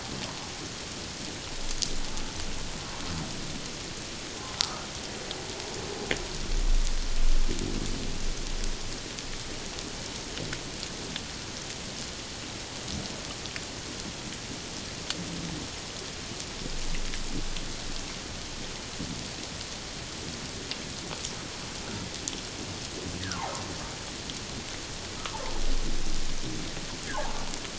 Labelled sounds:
4.5	4.9	humpback whale, 1.2 to 1.4 kHz
23.2	23.5	humpback whale, 0.78 to 2.0 kHz
27.1	27.4	humpback whale, 0.78 to 1.1 kHz

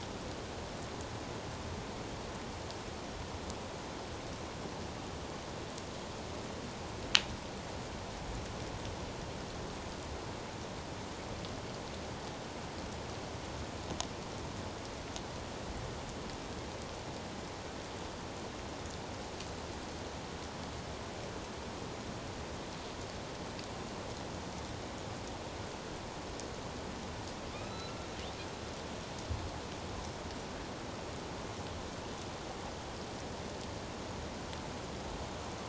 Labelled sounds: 27.5	28.0	killer whale, northern resident, A clan, AB subclan, 1.2 to 4.2 kHz

